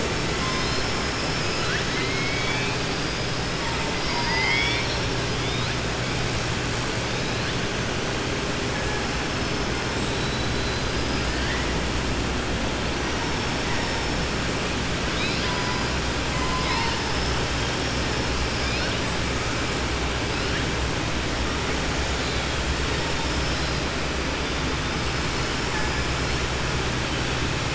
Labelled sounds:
3.9	5.1	killer whale, southern resident, 0.90 to 5.6 kHz
10.0	11.5	killer whale, southern resident, 3.5 to 5.2 kHz
16.3	17.3	killer whale, southern resident, 0.92 to 5.4 kHz

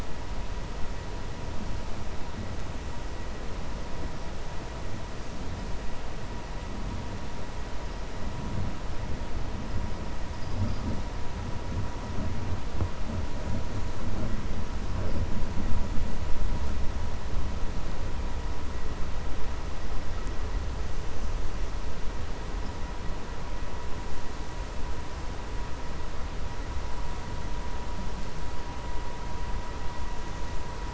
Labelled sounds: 10.3	10.8	vessel noise, 4.6 to 5.7 kHz

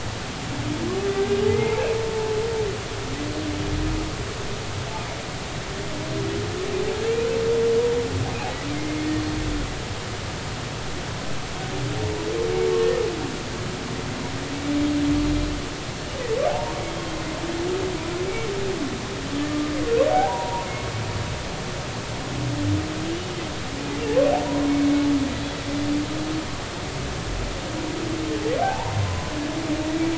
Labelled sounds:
1.5	1.8	humpback whale, 0.83 to 2.4 kHz
8.8	9.1	humpback whale, 2.0 to 2.2 kHz
16.5	16.8	humpback whale, 0.80 to 1.2 kHz
20.1	20.7	humpback whale, 0.80 to 1.0 kHz
28.6	29.3	humpback whale, 0.80 to 1.1 kHz

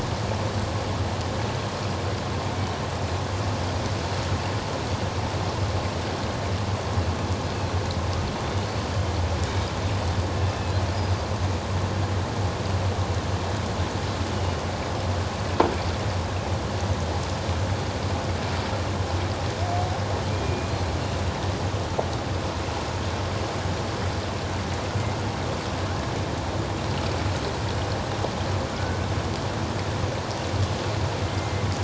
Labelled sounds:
8.7	9.0	killer whale, Bigg's (transient), 4.4 to 4.6 kHz
10.5	10.7	killer whale, Bigg's (transient), 2.5 to 2.7 kHz
20.3	20.7	killer whale, Bigg's (transient), 2.3 to 2.5 kHz
28.7	29.0	killer whale, Bigg's (transient), 1.3 to 1.6 kHz
31.3	31.7	killer whale, Bigg's (transient), 1.9 to 2.2 kHz

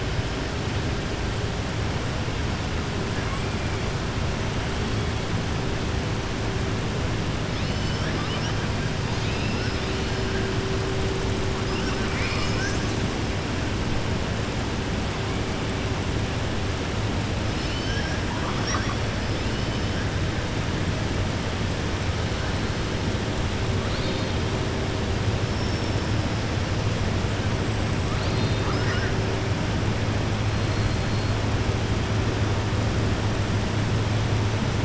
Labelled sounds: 9.0	10.2	killer whale, southern resident, 2.3 to 5.5 kHz
17.5	19.0	killer whale, southern resident, 0.90 to 6.1 kHz
23.8	24.3	killer whale, southern resident, 3.1 to 4.8 kHz
28.1	29.1	killer whale, southern resident, 0.83 to 5.8 kHz

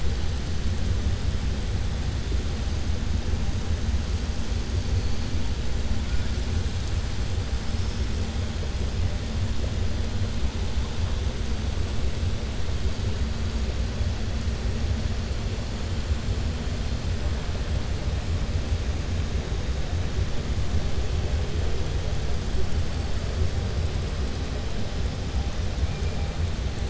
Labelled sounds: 7.6	8.0	killer whale, southern resident, 4.3 to 5.7 kHz

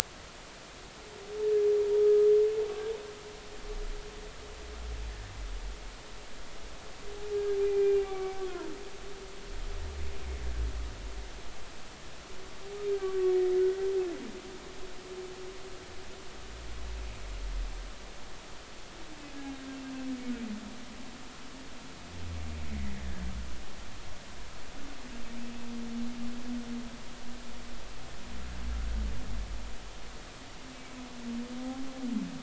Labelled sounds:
2.0	2.3	humpback whale, 1.2 to 1.3 kHz
7.6	8.7	humpback whale, 0.80 to 2.5 kHz
13.0	13.9	humpback whale, 1.1 to 1.6 kHz
30.8	31.0	humpback whale, 2.2 to 2.3 kHz

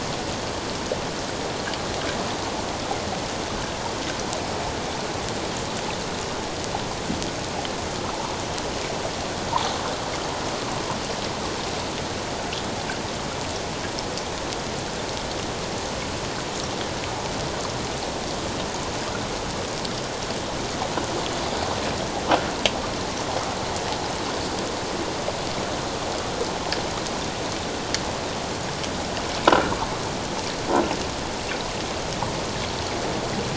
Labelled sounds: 9.5	9.8	water noise, 0.78 to 1.1 kHz
29.5	29.8	croaking sound likely from a nearby submerged object, 1.3 to 1.6 kHz

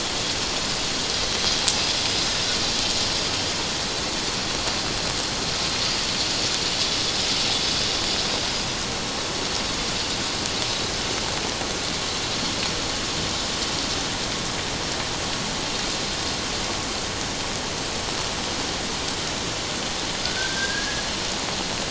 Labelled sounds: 20.2	21.0	killer whale, 1.4 to 1.8 kHz

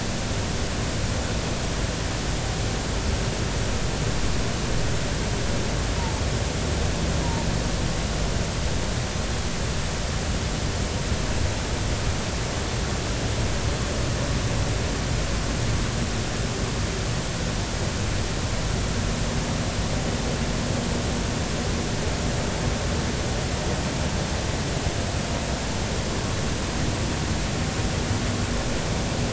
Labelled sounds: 6.0	6.2	humpback whale, 0.83 to 0.99 kHz

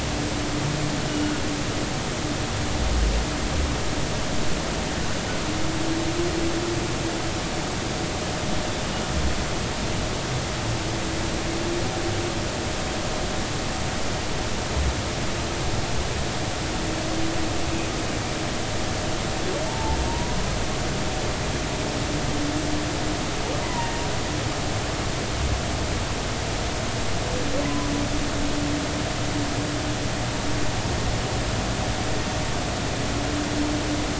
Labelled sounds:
19.7	20.3	humpback whale, 0.83 to 0.99 kHz
23.6	23.9	humpback whale, 0.90 to 1.1 kHz
27.6	27.9	humpback whale, 0.96 to 1.2 kHz

